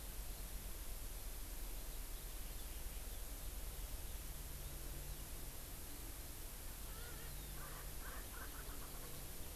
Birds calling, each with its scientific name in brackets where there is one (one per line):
Erckel's Francolin (Pternistis erckelii)